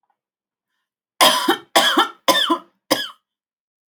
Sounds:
Cough